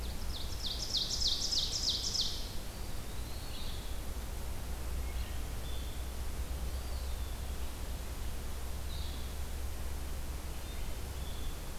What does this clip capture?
Ovenbird, Eastern Wood-Pewee, Blue-headed Vireo